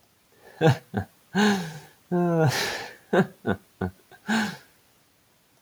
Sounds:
Laughter